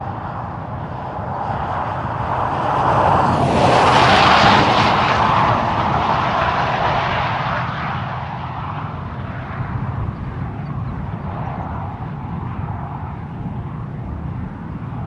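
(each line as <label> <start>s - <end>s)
A sporadic wind gust grows in intensity as it comes closer, then gradually fades, with birds singing softly in the background. 0.0s - 15.1s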